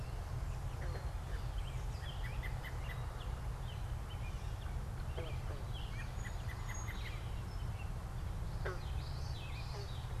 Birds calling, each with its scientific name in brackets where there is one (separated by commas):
Common Yellowthroat (Geothlypis trichas), Song Sparrow (Melospiza melodia), American Robin (Turdus migratorius)